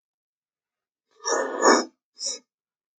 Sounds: Sniff